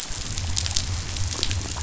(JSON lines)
{"label": "biophony", "recorder": "SoundTrap 500"}